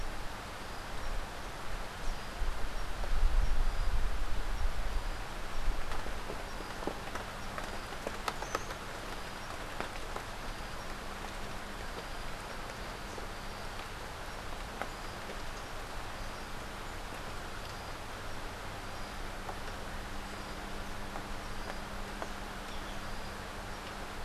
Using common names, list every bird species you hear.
Buff-throated Saltator